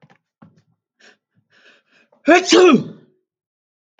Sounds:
Sneeze